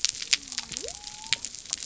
{"label": "biophony", "recorder": "SoundTrap 300"}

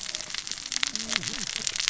{"label": "biophony, cascading saw", "recorder": "SoundTrap 600 or HydroMoth"}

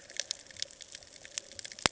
{"label": "ambient", "recorder": "HydroMoth"}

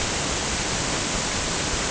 {"label": "ambient", "recorder": "HydroMoth"}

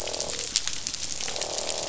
{"label": "biophony, croak", "recorder": "SoundTrap 500"}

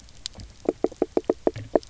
{"label": "biophony, knock", "recorder": "SoundTrap 300"}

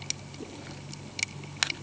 {"label": "anthrophony, boat engine", "recorder": "HydroMoth"}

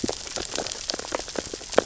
{"label": "biophony, sea urchins (Echinidae)", "recorder": "SoundTrap 600 or HydroMoth"}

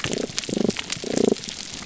{"label": "biophony, damselfish", "recorder": "SoundTrap 300"}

